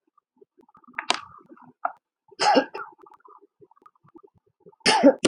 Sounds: Cough